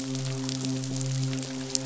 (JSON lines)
{"label": "biophony, midshipman", "recorder": "SoundTrap 500"}